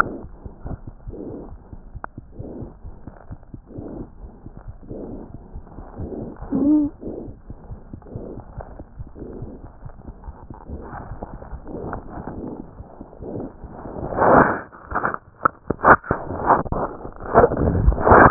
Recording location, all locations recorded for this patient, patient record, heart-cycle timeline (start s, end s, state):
aortic valve (AV)
aortic valve (AV)+pulmonary valve (PV)+tricuspid valve (TV)+mitral valve (MV)
#Age: Infant
#Sex: Female
#Height: 70.0 cm
#Weight: 9.3 kg
#Pregnancy status: False
#Murmur: Absent
#Murmur locations: nan
#Most audible location: nan
#Systolic murmur timing: nan
#Systolic murmur shape: nan
#Systolic murmur grading: nan
#Systolic murmur pitch: nan
#Systolic murmur quality: nan
#Diastolic murmur timing: nan
#Diastolic murmur shape: nan
#Diastolic murmur grading: nan
#Diastolic murmur pitch: nan
#Diastolic murmur quality: nan
#Outcome: Abnormal
#Campaign: 2015 screening campaign
0.00	7.25	unannotated
7.25	7.32	S1
7.32	7.45	systole
7.45	7.54	S2
7.54	7.68	diastole
7.68	7.80	S1
7.80	7.88	systole
7.88	7.98	S2
7.98	8.13	diastole
8.13	8.21	S1
8.21	8.35	systole
8.35	8.41	S2
8.41	8.57	diastole
8.57	8.63	S1
8.63	8.77	systole
8.77	8.84	S2
8.84	8.97	diastole
8.97	9.04	S1
9.04	9.18	systole
9.18	9.26	S2
9.26	9.40	diastole
9.40	9.47	S1
9.47	9.63	systole
9.63	9.69	S2
9.69	9.82	diastole
9.82	9.90	S1
9.90	10.06	systole
10.06	10.14	S2
10.14	10.26	diastole
10.26	10.34	S1
10.34	10.49	systole
10.49	10.54	S2
10.54	10.70	diastole
10.70	10.79	S1
10.79	10.94	systole
10.94	11.03	S2
11.03	11.11	diastole
11.11	18.30	unannotated